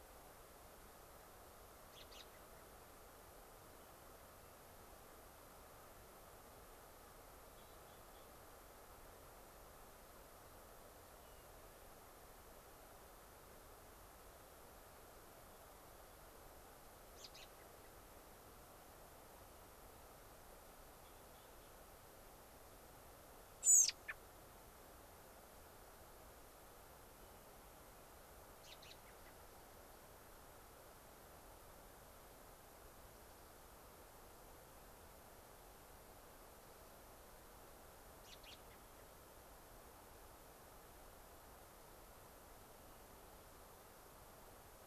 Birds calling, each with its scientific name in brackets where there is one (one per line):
Hermit Thrush (Catharus guttatus)
American Robin (Turdus migratorius)